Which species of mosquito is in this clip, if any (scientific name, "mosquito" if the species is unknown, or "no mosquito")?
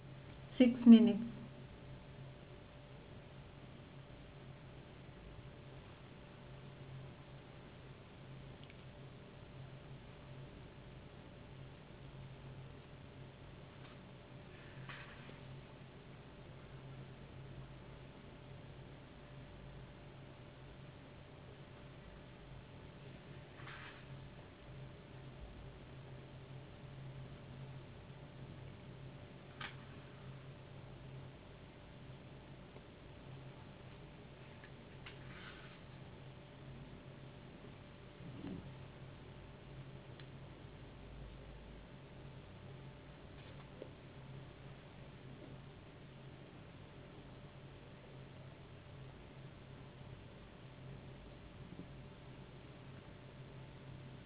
no mosquito